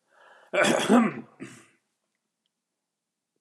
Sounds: Throat clearing